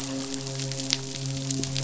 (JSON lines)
{"label": "biophony, midshipman", "recorder": "SoundTrap 500"}